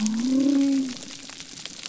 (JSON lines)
{"label": "biophony", "recorder": "SoundTrap 300"}